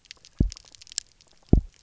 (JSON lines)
{"label": "biophony, double pulse", "recorder": "SoundTrap 300"}